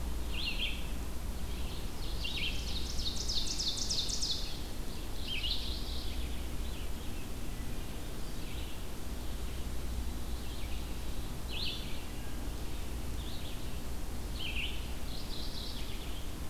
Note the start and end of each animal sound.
0.0s-16.5s: Red-eyed Vireo (Vireo olivaceus)
1.3s-4.5s: Ovenbird (Seiurus aurocapilla)
5.0s-6.5s: Mourning Warbler (Geothlypis philadelphia)
14.9s-16.3s: Mourning Warbler (Geothlypis philadelphia)

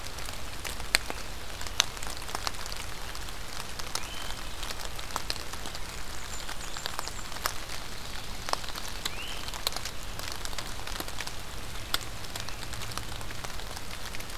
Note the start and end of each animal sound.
3.8s-4.4s: Great Crested Flycatcher (Myiarchus crinitus)
6.1s-7.5s: Blackburnian Warbler (Setophaga fusca)
7.5s-9.0s: Ovenbird (Seiurus aurocapilla)
9.0s-9.6s: Great Crested Flycatcher (Myiarchus crinitus)

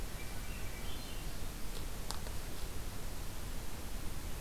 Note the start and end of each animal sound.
0.0s-1.4s: Swainson's Thrush (Catharus ustulatus)

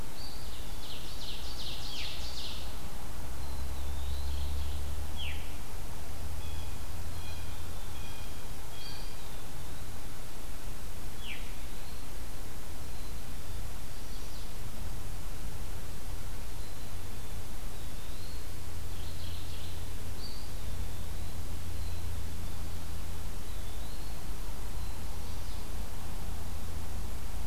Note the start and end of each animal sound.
0.0s-0.9s: Eastern Wood-Pewee (Contopus virens)
0.8s-2.7s: Ovenbird (Seiurus aurocapilla)
3.2s-4.5s: Eastern Wood-Pewee (Contopus virens)
3.9s-4.9s: Mourning Warbler (Geothlypis philadelphia)
5.0s-5.6s: Veery (Catharus fuscescens)
6.3s-9.1s: Blue Jay (Cyanocitta cristata)
8.7s-9.8s: Eastern Wood-Pewee (Contopus virens)
11.1s-11.5s: Veery (Catharus fuscescens)
11.1s-12.1s: Eastern Wood-Pewee (Contopus virens)
12.7s-13.7s: Black-capped Chickadee (Poecile atricapillus)
13.8s-14.6s: Chestnut-sided Warbler (Setophaga pensylvanica)
16.4s-17.5s: Black-capped Chickadee (Poecile atricapillus)
17.6s-18.5s: Eastern Wood-Pewee (Contopus virens)
18.9s-19.8s: Mourning Warbler (Geothlypis philadelphia)
20.0s-21.3s: Eastern Wood-Pewee (Contopus virens)
21.7s-22.6s: Black-capped Chickadee (Poecile atricapillus)
23.3s-24.4s: Eastern Wood-Pewee (Contopus virens)
25.0s-25.6s: Chestnut-sided Warbler (Setophaga pensylvanica)

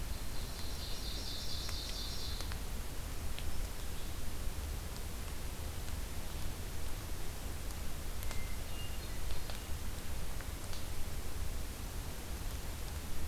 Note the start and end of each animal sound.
0.1s-2.6s: Ovenbird (Seiurus aurocapilla)
8.2s-9.7s: Hermit Thrush (Catharus guttatus)

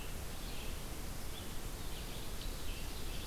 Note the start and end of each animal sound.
0.0s-3.3s: Red-eyed Vireo (Vireo olivaceus)
1.9s-3.3s: Ovenbird (Seiurus aurocapilla)

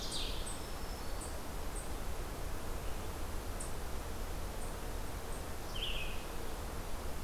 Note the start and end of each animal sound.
0.0s-7.2s: Eastern Chipmunk (Tamias striatus)
0.3s-1.7s: Black-throated Green Warbler (Setophaga virens)
5.6s-6.3s: Red-eyed Vireo (Vireo olivaceus)

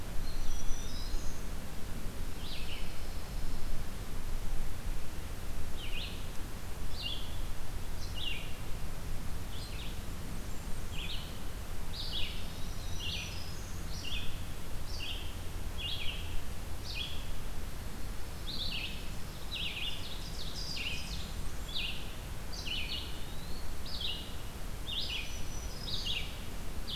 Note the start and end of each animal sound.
0.0s-27.0s: Red-eyed Vireo (Vireo olivaceus)
0.0s-1.2s: Eastern Wood-Pewee (Contopus virens)
0.3s-1.5s: Black-throated Green Warbler (Setophaga virens)
2.2s-3.9s: Pine Warbler (Setophaga pinus)
9.5s-11.1s: Blackburnian Warbler (Setophaga fusca)
12.6s-13.8s: Black-throated Green Warbler (Setophaga virens)
18.1s-19.7s: Pine Warbler (Setophaga pinus)
19.6s-21.3s: Ovenbird (Seiurus aurocapilla)
20.8s-21.8s: Blackburnian Warbler (Setophaga fusca)
23.1s-23.7s: Eastern Wood-Pewee (Contopus virens)
24.9s-26.3s: Black-throated Green Warbler (Setophaga virens)

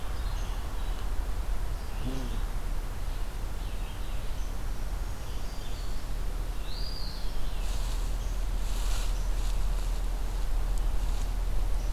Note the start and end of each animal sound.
0.1s-11.9s: Red-eyed Vireo (Vireo olivaceus)
6.4s-7.6s: Eastern Wood-Pewee (Contopus virens)

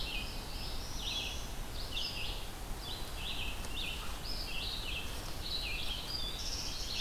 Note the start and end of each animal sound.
0.0s-7.0s: Red-eyed Vireo (Vireo olivaceus)
0.1s-1.5s: Northern Parula (Setophaga americana)
6.0s-7.0s: unidentified call

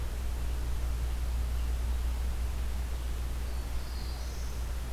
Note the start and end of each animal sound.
3.0s-4.9s: Black-throated Blue Warbler (Setophaga caerulescens)

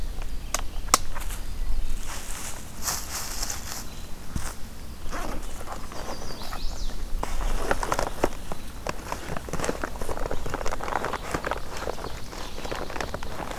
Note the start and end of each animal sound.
5.6s-6.9s: Chestnut-sided Warbler (Setophaga pensylvanica)

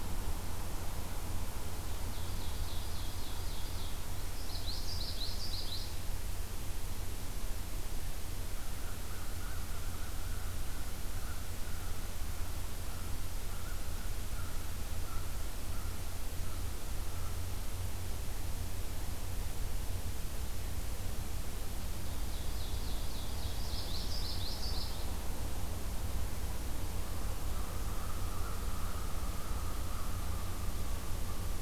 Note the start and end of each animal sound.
1.9s-3.9s: Ovenbird (Seiurus aurocapilla)
4.3s-5.9s: Common Yellowthroat (Geothlypis trichas)
8.7s-17.6s: American Crow (Corvus brachyrhynchos)
22.0s-23.9s: Ovenbird (Seiurus aurocapilla)
23.6s-25.0s: Common Yellowthroat (Geothlypis trichas)
27.3s-31.6s: American Crow (Corvus brachyrhynchos)

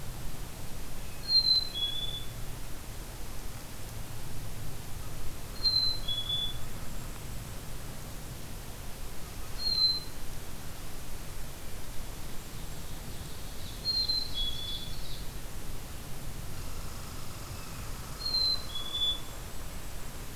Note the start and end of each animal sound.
1.1s-2.4s: Black-capped Chickadee (Poecile atricapillus)
5.5s-6.7s: Black-capped Chickadee (Poecile atricapillus)
5.8s-8.0s: Golden-crowned Kinglet (Regulus satrapa)
9.4s-10.2s: Black-capped Chickadee (Poecile atricapillus)
12.2s-15.3s: Ovenbird (Seiurus aurocapilla)
13.7s-15.0s: Black-capped Chickadee (Poecile atricapillus)
16.4s-19.8s: Red Squirrel (Tamiasciurus hudsonicus)
18.2s-19.3s: Black-capped Chickadee (Poecile atricapillus)
18.7s-20.4s: Golden-crowned Kinglet (Regulus satrapa)

